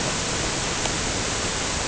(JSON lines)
{"label": "ambient", "recorder": "HydroMoth"}